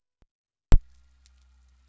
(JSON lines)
{"label": "anthrophony, boat engine", "recorder": "SoundTrap 300"}